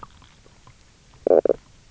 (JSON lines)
{"label": "biophony, knock croak", "recorder": "SoundTrap 300"}